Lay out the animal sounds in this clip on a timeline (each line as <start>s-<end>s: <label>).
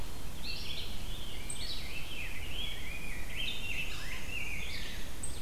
0.0s-5.4s: Red-eyed Vireo (Vireo olivaceus)
0.0s-5.4s: unidentified call
1.2s-5.1s: Rose-breasted Grosbeak (Pheucticus ludovicianus)